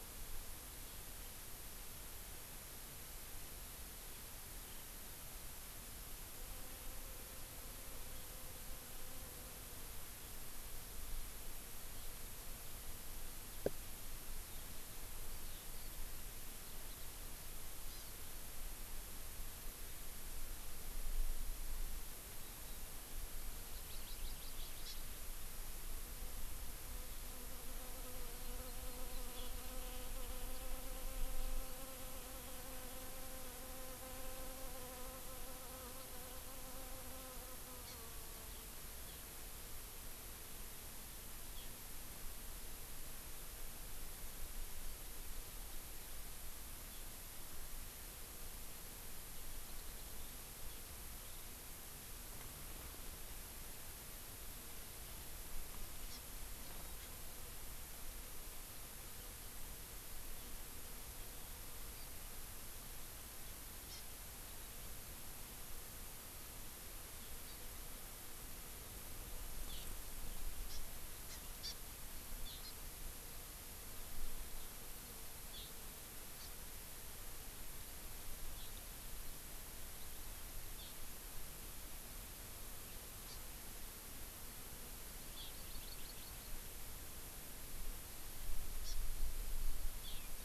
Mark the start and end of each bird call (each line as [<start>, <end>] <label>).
[4.51, 4.81] Eurasian Skylark (Alauda arvensis)
[10.11, 10.41] Eurasian Skylark (Alauda arvensis)
[14.41, 17.01] Eurasian Skylark (Alauda arvensis)
[17.91, 18.11] Hawaii Amakihi (Chlorodrepanis virens)
[23.71, 25.01] Hawaii Amakihi (Chlorodrepanis virens)
[28.41, 29.41] Hawaii Amakihi (Chlorodrepanis virens)
[37.81, 38.01] Hawaii Amakihi (Chlorodrepanis virens)
[39.01, 39.21] Eurasian Skylark (Alauda arvensis)
[41.51, 41.71] Eurasian Skylark (Alauda arvensis)
[49.61, 50.11] Hawaii Amakihi (Chlorodrepanis virens)
[51.21, 51.51] Eurasian Skylark (Alauda arvensis)
[56.11, 56.21] Hawaii Amakihi (Chlorodrepanis virens)
[56.91, 57.11] Hawaii Amakihi (Chlorodrepanis virens)
[63.81, 64.01] Hawaii Amakihi (Chlorodrepanis virens)
[67.41, 67.61] Hawaii Amakihi (Chlorodrepanis virens)
[69.71, 69.91] Eurasian Skylark (Alauda arvensis)
[70.61, 70.81] Hawaii Amakihi (Chlorodrepanis virens)
[71.31, 71.71] Hawaii Amakihi (Chlorodrepanis virens)
[72.41, 72.61] Eurasian Skylark (Alauda arvensis)
[72.61, 72.71] Hawaii Amakihi (Chlorodrepanis virens)
[75.51, 75.71] Eurasian Skylark (Alauda arvensis)
[76.41, 76.51] Hawaii Amakihi (Chlorodrepanis virens)
[78.51, 78.71] Eurasian Skylark (Alauda arvensis)
[80.71, 80.91] Eurasian Skylark (Alauda arvensis)
[83.21, 83.41] Hawaii Amakihi (Chlorodrepanis virens)
[85.31, 85.51] Eurasian Skylark (Alauda arvensis)
[85.51, 86.51] Hawaii Amakihi (Chlorodrepanis virens)
[88.81, 88.91] Hawaii Amakihi (Chlorodrepanis virens)
[90.01, 90.11] Hawaii Amakihi (Chlorodrepanis virens)
[90.11, 90.31] Eurasian Skylark (Alauda arvensis)